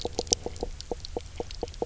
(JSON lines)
{"label": "biophony, knock croak", "recorder": "SoundTrap 300"}